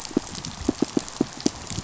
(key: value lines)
label: biophony, pulse
recorder: SoundTrap 500